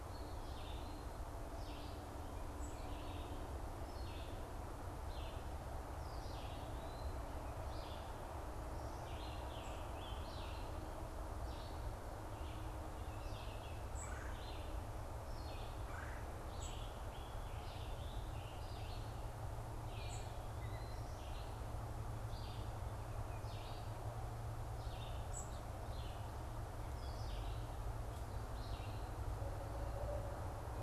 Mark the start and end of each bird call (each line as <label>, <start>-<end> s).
unidentified bird, 0.0-2.9 s
Red-eyed Vireo (Vireo olivaceus), 0.0-6.8 s
Red-eyed Vireo (Vireo olivaceus), 7.6-30.8 s
Scarlet Tanager (Piranga olivacea), 8.8-10.7 s
Red-bellied Woodpecker (Melanerpes carolinus), 13.8-16.3 s
unidentified bird, 13.8-20.3 s
Scarlet Tanager (Piranga olivacea), 16.4-18.8 s
unidentified bird, 25.2-25.6 s